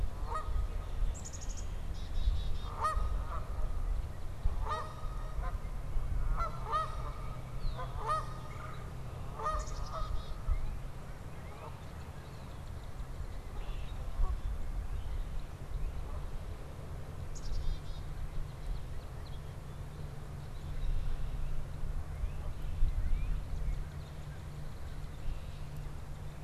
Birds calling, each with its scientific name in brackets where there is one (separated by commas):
Canada Goose (Branta canadensis), Northern Cardinal (Cardinalis cardinalis), Red-winged Blackbird (Agelaius phoeniceus), Red-bellied Woodpecker (Melanerpes carolinus), Black-capped Chickadee (Poecile atricapillus)